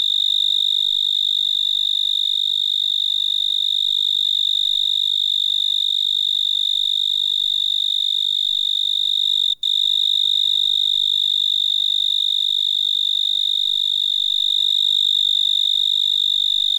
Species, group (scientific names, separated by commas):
Oecanthus dulcisonans, Orthoptera